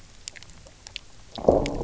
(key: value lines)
label: biophony, low growl
recorder: SoundTrap 300